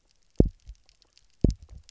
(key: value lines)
label: biophony, double pulse
recorder: SoundTrap 300